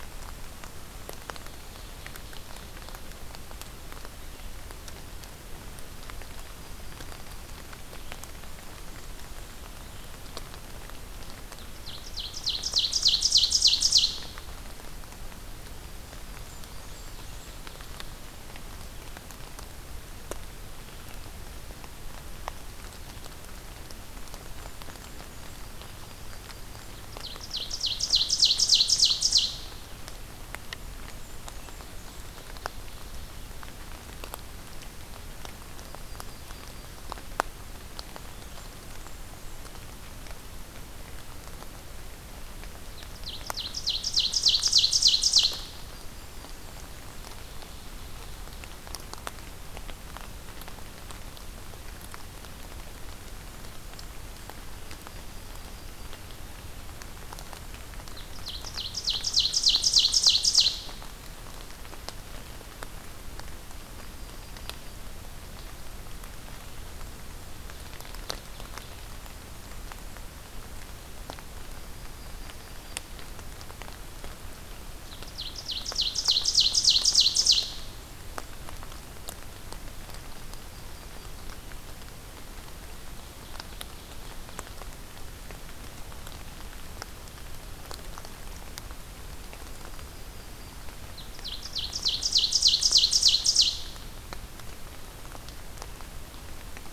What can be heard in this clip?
Ovenbird, Blackburnian Warbler, Yellow-rumped Warbler